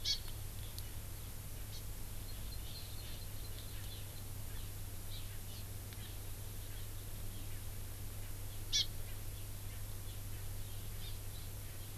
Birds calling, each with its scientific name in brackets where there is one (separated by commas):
Hawaii Amakihi (Chlorodrepanis virens)